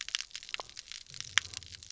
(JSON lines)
{"label": "biophony", "recorder": "SoundTrap 300"}